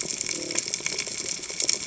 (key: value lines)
label: biophony
recorder: HydroMoth